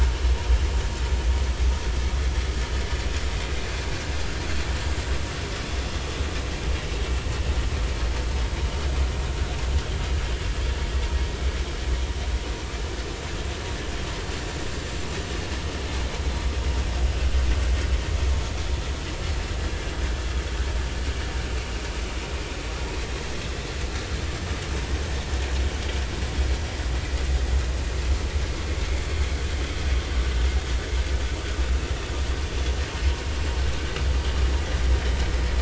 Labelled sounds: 19.6	19.9	vessel noise, 1.6 to 1.8 kHz

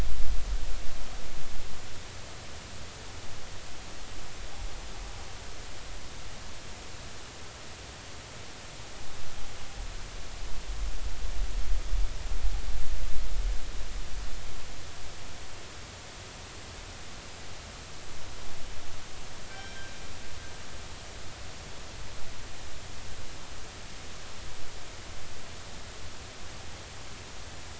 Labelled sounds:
19.5	19.9	killer whale, northern resident, G clan, call N24ii, 1.5 to 3.2 kHz

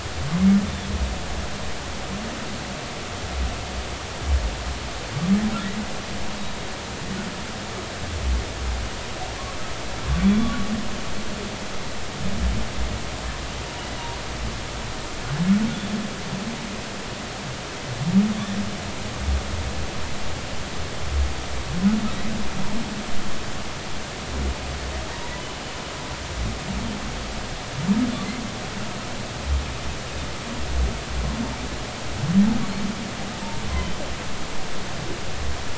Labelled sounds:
10.2	10.6	humpback whale, 1.1 to 3.5 kHz

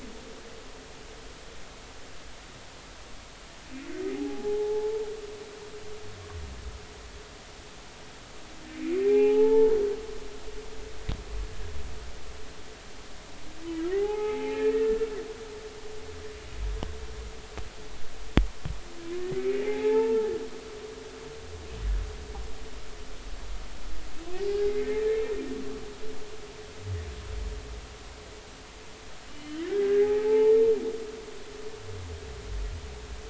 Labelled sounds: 4.1	5.0	humpback whale, 0.80 to 0.96 kHz
8.9	9.8	humpback whale, 0.80 to 3.0 kHz
13.9	15.0	humpback whale, 0.80 to 2.6 kHz
19.4	20.3	humpback whale, 0.80 to 2.5 kHz
24.6	25.2	humpback whale, 1.7 to 2.2 kHz
29.3	30.6	humpback whale, 0.80 to 3.2 kHz

